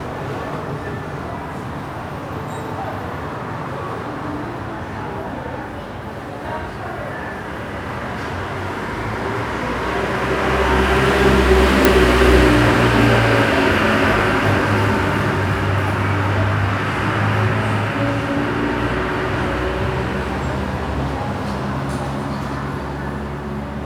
is there more than one car?
yes